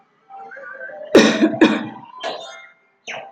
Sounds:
Cough